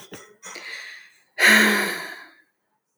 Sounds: Sigh